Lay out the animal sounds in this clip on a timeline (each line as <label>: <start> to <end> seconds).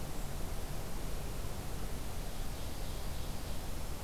Ovenbird (Seiurus aurocapilla): 2.5 to 3.6 seconds